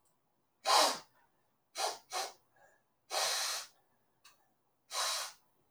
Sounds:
Sniff